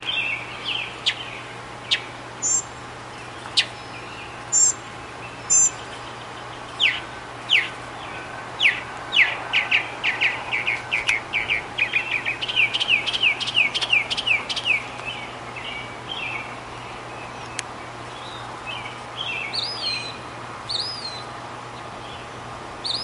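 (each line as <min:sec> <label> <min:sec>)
0:00.0 A bird is calling nearby. 0:00.9
0:00.0 A bird chirps quietly in the background. 0:23.0
0:00.0 Outdoor static noise. 0:23.0
0:01.0 A bird chirping nearby. 0:01.1
0:01.9 A bird chirping nearby. 0:02.6
0:03.5 A bird chirping nearby. 0:03.7
0:04.5 A bird chirping nearby. 0:04.8
0:05.5 A bird chirping nearby. 0:05.7
0:06.8 A bird chirping nearby. 0:07.7
0:08.6 A bird chirping nearby. 0:09.4
0:09.4 A bird is calling nearby. 0:11.7
0:11.7 A bird is singing nearby. 0:14.9
0:17.6 A person is touching the recording device. 0:17.6
0:19.5 A bird sings briefly nearby. 0:21.3
0:22.8 A bird sings briefly nearby. 0:23.0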